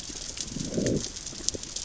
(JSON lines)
{"label": "biophony, growl", "recorder": "SoundTrap 600 or HydroMoth"}